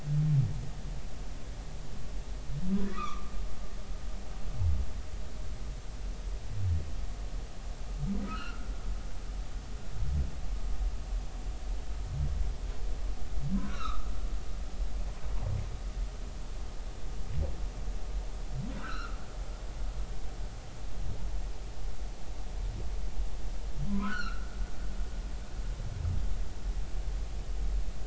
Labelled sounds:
2.9	3.3	humpback whale, 0.99 to 2.7 kHz
8.3	8.7	humpback whale, 1.2 to 3.1 kHz
13.6	14.1	humpback whale, 1.1 to 4.2 kHz
18.7	19.2	humpback whale, 1.2 to 3.0 kHz
23.9	24.5	humpback whale, 0.96 to 4.5 kHz

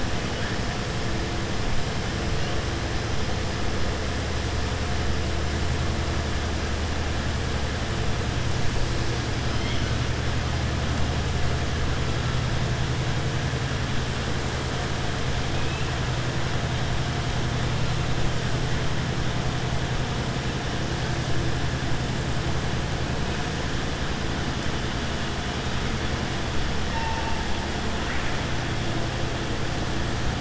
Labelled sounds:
9.4	9.9	killer whale, southern resident, 2.0 to 5.3 kHz
26.8	27.4	killer whale, southern resident, 0.85 to 2.8 kHz

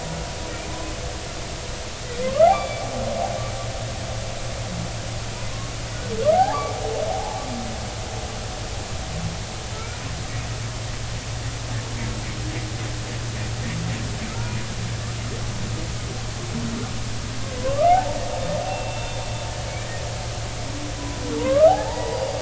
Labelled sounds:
2.2	2.8	humpback whale, 0.99 to 3.6 kHz
6.3	7.4	humpback whale, 0.80 to 0.99 kHz
9.7	10.0	humpback whale, 1.3 to 1.5 kHz
14.3	14.5	humpback whale, 1.2 to 1.5 kHz
17.6	19.2	humpback whale, 0.80 to 3.6 kHz
21.0	22.3	humpback whale, 0.80 to 2.0 kHz

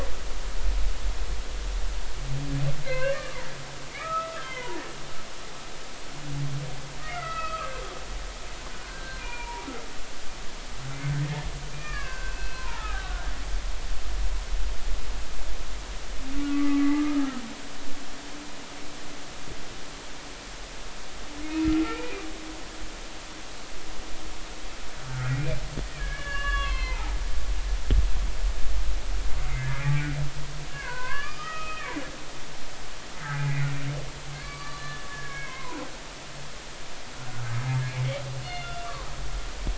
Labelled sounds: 2.8	3.5	humpback whale, 0.90 to 2.9 kHz
4.0	4.8	humpback whale, 0.86 to 1.4 kHz
7.0	7.7	humpback whale, 1.1 to 2.7 kHz
8.7	9.7	humpback whale, 0.90 to 2.5 kHz
11.7	13.3	humpback whale, 0.83 to 2.9 kHz
16.5	17.2	humpback whale, 1.1 to 2.1 kHz
21.8	22.2	humpback whale, 2.2 to 2.5 kHz
25.1	25.6	humpback whale, 1.3 to 2.5 kHz
25.9	27.2	humpback whale, 0.80 to 4.4 kHz
29.4	30.1	humpback whale, 1.6 to 2.5 kHz
30.7	32.0	humpback whale, 0.90 to 5.0 kHz
33.3	33.7	humpback whale, 1.8 to 2.6 kHz
34.3	36.1	humpback whale, 0.93 to 4.7 kHz
38.4	39.1	humpback whale, 0.99 to 3.7 kHz

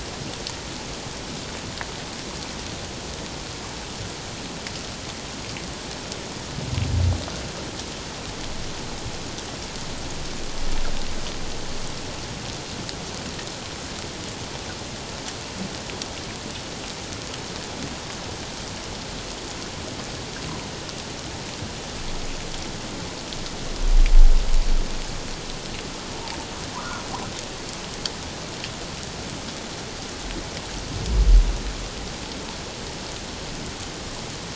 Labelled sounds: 26.7	27.0	humpback whale, 0.94 to 1.5 kHz

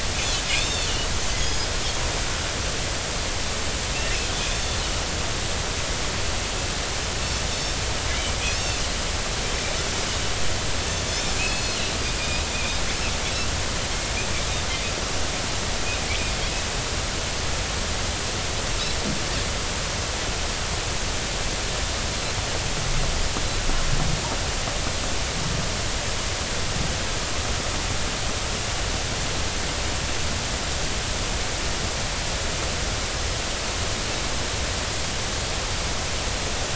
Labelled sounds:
0.6	0.9	Pacific white-sided dolphin, 3.4 to 3.7 kHz
1.4	1.9	Pacific white-sided dolphin, 4.9 to 6.8 kHz
8.4	9.8	Pacific white-sided dolphin, 2.4 to 6.5 kHz
11.1	12.4	Pacific white-sided dolphin, 2.4 to 5.5 kHz

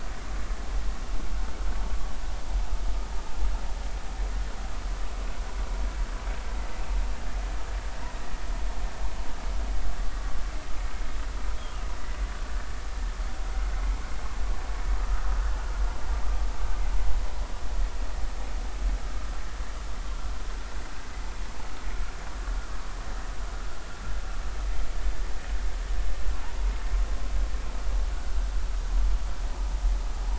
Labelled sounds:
26.4	26.7	vessel noise, 0.80 to 1.0 kHz

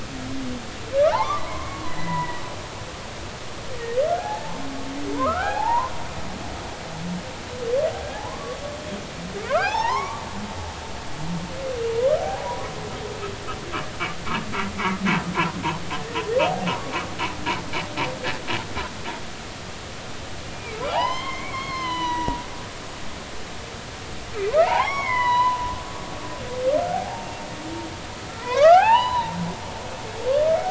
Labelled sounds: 1.1	2.4	humpback whale, 0.80 to 2.3 kHz
4.2	4.6	humpback whale, 0.80 to 1.8 kHz
5.1	5.9	humpback whale, 0.80 to 2.6 kHz
8.1	8.6	humpback whale, 0.80 to 1.2 kHz
9.5	10.9	humpback whale, 0.80 to 5.8 kHz
12.2	12.7	humpback whale, 0.80 to 1.2 kHz
15.3	15.6	humpback whale, 0.90 to 1.1 kHz
20.5	22.4	humpback whale, 0.80 to 6.0 kHz
24.6	25.6	humpback whale, 0.80 to 5.0 kHz
26.9	27.3	humpback whale, 0.80 to 0.96 kHz
28.4	29.4	humpback whale, 0.80 to 4.0 kHz

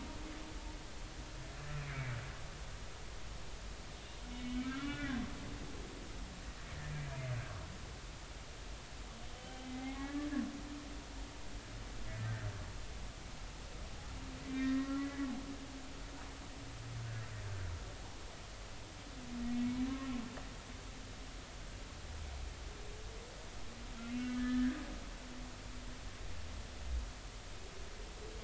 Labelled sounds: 1.8	2.2	humpback whale, 2.2 to 2.5 kHz
4.3	5.2	humpback whale, 1.3 to 3.6 kHz
9.3	10.3	humpback whale, 0.80 to 3.2 kHz
12.2	12.5	humpback whale, 1.7 to 2.0 kHz
14.5	15.3	humpback whale, 1.8 to 2.0 kHz
24.0	24.8	humpback whale, 1.5 to 2.8 kHz

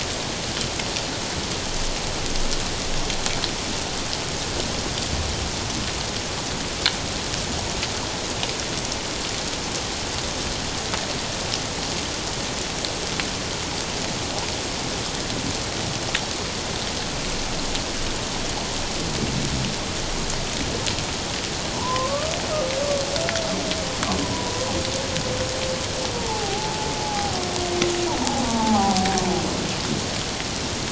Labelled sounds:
21.7	22.3	humpback whale, 0.81 to 1.3 kHz
24.2	24.7	humpback whale, 0.91 to 1.0 kHz
26.1	27.4	humpback whale, 0.78 to 1.0 kHz
28.2	29.2	humpback whale, 0.78 to 1.0 kHz

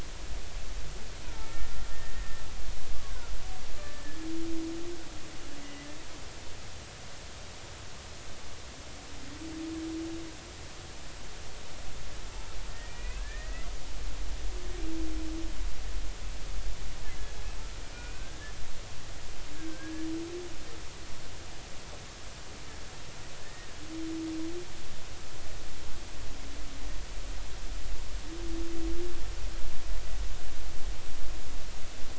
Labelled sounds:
1.3	2.2	humpback whale, 1.2 to 2.3 kHz
3.8	4.2	humpback whale, 1.2 to 1.8 kHz
5.6	5.9	humpback whale, 1.95 to 2.05 kHz
12.7	13.7	humpback whale, 1.6 to 2.7 kHz
17.9	18.5	humpback whale, 1.4 to 2.6 kHz
19.5	20.0	humpback whale, 1.5 to 1.8 kHz
23.4	23.7	humpback whale, 1.7 to 1.9 kHz

